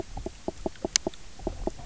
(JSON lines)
{"label": "biophony, knock croak", "recorder": "SoundTrap 300"}